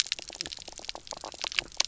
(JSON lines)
{"label": "biophony, knock croak", "recorder": "SoundTrap 300"}